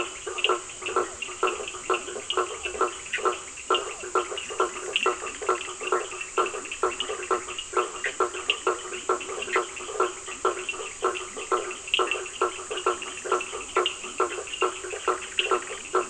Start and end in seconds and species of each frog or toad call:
0.0	16.0	Boana faber
0.0	16.0	Leptodactylus latrans
0.0	16.0	Sphaenorhynchus surdus
3.0	3.4	Boana bischoffi
7.9	8.3	Boana bischoffi
9.3	10.0	Boana bischoffi
14.5	16.0	Boana bischoffi

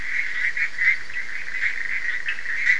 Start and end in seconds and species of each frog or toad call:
0.0	2.7	Boana bischoffi
2.2	2.5	Sphaenorhynchus surdus

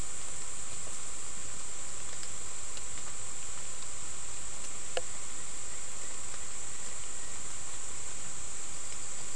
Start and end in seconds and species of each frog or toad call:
none

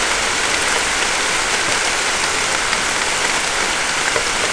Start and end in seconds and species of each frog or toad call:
none

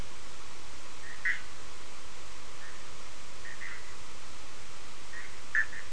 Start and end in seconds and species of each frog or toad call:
3.4	3.9	Boana bischoffi
5.5	5.9	Boana bischoffi

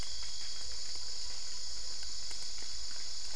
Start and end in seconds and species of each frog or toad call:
none

